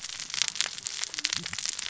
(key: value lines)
label: biophony, cascading saw
recorder: SoundTrap 600 or HydroMoth